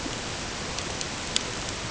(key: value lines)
label: ambient
recorder: HydroMoth